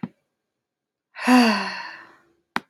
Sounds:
Sigh